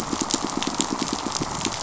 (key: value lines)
label: biophony, pulse
recorder: SoundTrap 500